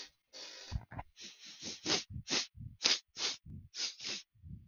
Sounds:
Sniff